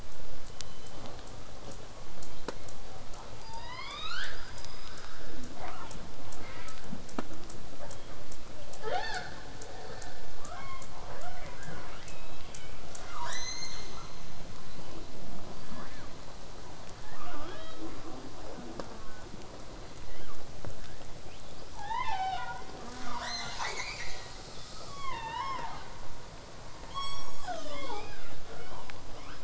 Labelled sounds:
2.2	3.1	killer whale, southern resident, 0.31 to 2.4 kHz
3.4	5.3	killer whale, southern resident, L pod, call S19, 0.58 to 7.7 kHz
5.5	5.9	killer whale, southern resident, 0.19 to 3.0 kHz
7.8	8.2	killer whale, southern resident, 0.31 to 1.8 kHz
8.8	9.3	killer whale, southern resident, L pod, call S18, 0.26 to 7.3 kHz
10.4	10.9	killer whale, southern resident, L pod, call S18, 0.26 to 5.0 kHz
11.6	12.7	killer whale, southern resident, call S02, 0.18 to 4.5 kHz
13.0	14.2	killer whale, southern resident, call S02, 0.44 to 8.0 kHz
15.6	16.1	killer whale, southern resident, 0.23 to 2.3 kHz
17.0	18.0	killer whale, southern resident, 0.26 to 4.0 kHz
18.5	19.2	killer whale, southern resident, J pod, call S04, 0.83 to 1.8 kHz
20.1	20.4	killer whale, southern resident, 0.72 to 3.5 kHz
21.3	21.6	killer whale, southern resident, whistle, 2.3 to 5.1 kHz
22.8	23.6	killer whale, southern resident, J pod, call S04, 0.27 to 1.9 kHz
23.1	24.8	killer whale, southern resident, call S10, 0.26 to 8.0 kHz
26.9	28.4	killer whale, southern resident, J pod, call S07, 0.13 to 8.0 kHz
27.7	29.4	killer whale, southern resident, 0.19 to 5.5 kHz

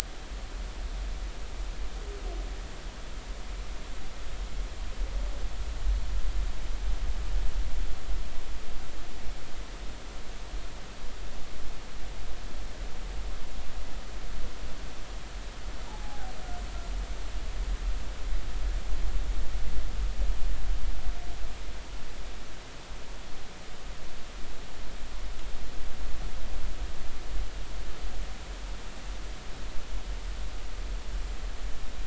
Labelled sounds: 15.9	16.3	humpback whale, 0.80 to 0.99 kHz

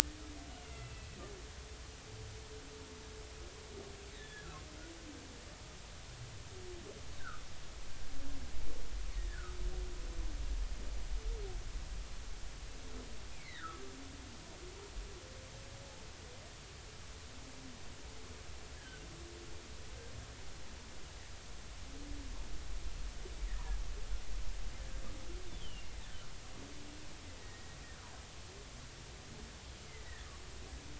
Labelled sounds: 0.6	1.1	humpback whale, 2.6 to 2.8 kHz
4.1	4.5	humpback whale, 1.6 to 3.5 kHz
7.2	7.4	humpback whale, 1.2 to 1.8 kHz
9.2	9.6	humpback whale, 1.2 to 1.9 kHz
13.3	13.8	humpback whale, 1.1 to 2.5 kHz
18.7	19.0	humpback whale, 1.4 to 1.8 kHz
25.5	25.9	humpback whale, 2.7 to 3.6 kHz
27.4	27.7	humpback whale, 1.8 to 2.0 kHz

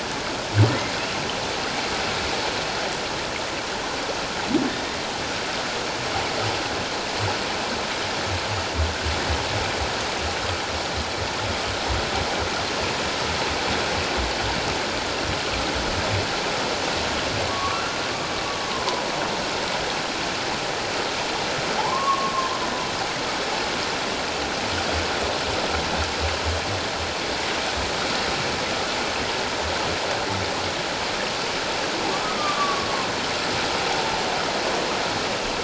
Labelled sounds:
0.7	0.9	humpback whale, 1.8 to 2.2 kHz
17.5	17.8	humpback whale, 1.0 to 1.2 kHz
18.7	19.0	humpback whale, 0.91 to 1.1 kHz
21.8	22.6	humpback whale, 0.78 to 1.2 kHz
32.1	32.9	humpback whale, 1.1 to 1.3 kHz

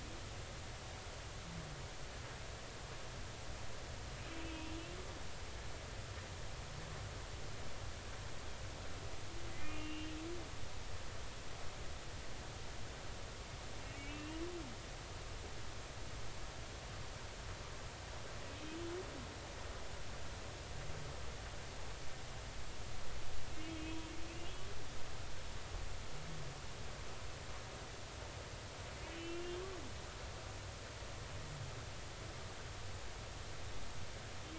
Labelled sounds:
9.5	10.1	humpback whale, 1.9 to 2.9 kHz
13.9	14.4	humpback whale, 2.2 to 3.0 kHz
23.7	24.1	humpback whale, 3.1 to 3.3 kHz
29.1	29.4	humpback whale, 2.9 to 3.1 kHz

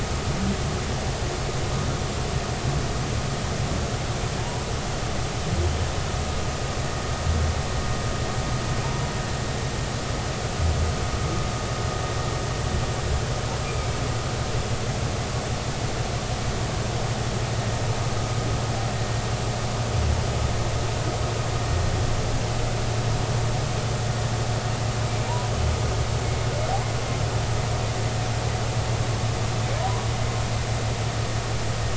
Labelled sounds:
4.4	4.6	humpback whale, 0.86 to 1.0 kHz
13.7	14.0	humpback whale, 2.2 to 2.5 kHz
29.8	30.1	humpback whale, 0.93 to 1.2 kHz

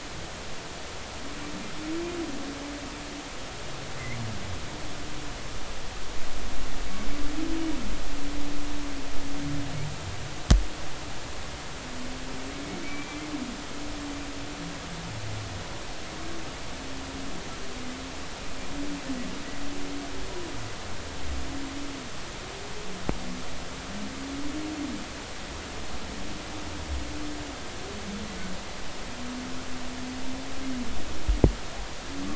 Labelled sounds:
12.8	13.2	humpback whale, 2.2 to 2.4 kHz

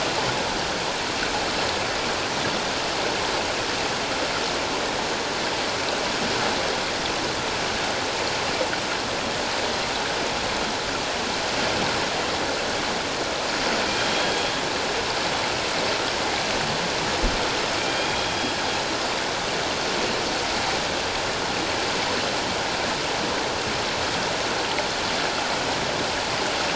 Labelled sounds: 13.9	14.5	killer whale, northern resident, G clan, 3.2 to 3.4 kHz
17.8	18.5	killer whale, northern resident, G clan, 2.2 to 3.3 kHz

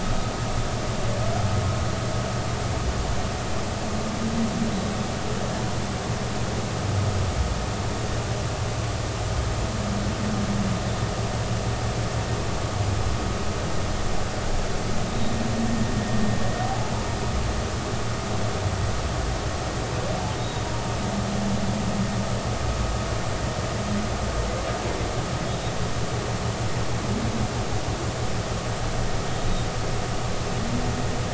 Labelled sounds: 16.6	16.9	humpback whale, 0.80 to 0.90 kHz
20.4	20.6	humpback whale, 3.7 to 3.9 kHz

